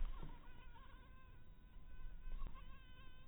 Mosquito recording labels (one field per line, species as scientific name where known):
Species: mosquito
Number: one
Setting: cup